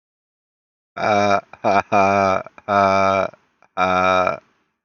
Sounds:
Laughter